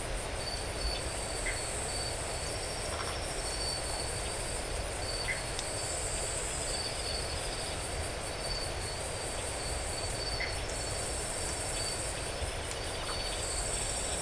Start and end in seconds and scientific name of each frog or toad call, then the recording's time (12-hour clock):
1.4	1.7	Dendropsophus elegans
2.8	3.2	Phyllomedusa distincta
5.2	5.5	Dendropsophus elegans
10.3	10.6	Dendropsophus elegans
13.0	13.2	Phyllomedusa distincta
2:00am